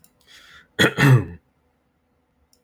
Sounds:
Throat clearing